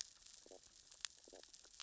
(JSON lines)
{"label": "biophony, stridulation", "recorder": "SoundTrap 600 or HydroMoth"}